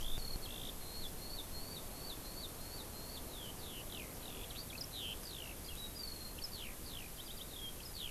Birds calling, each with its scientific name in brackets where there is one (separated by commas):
Eurasian Skylark (Alauda arvensis)